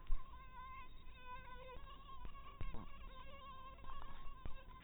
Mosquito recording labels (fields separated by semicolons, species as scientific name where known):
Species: mosquito; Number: one; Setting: cup